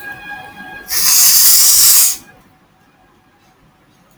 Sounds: Sneeze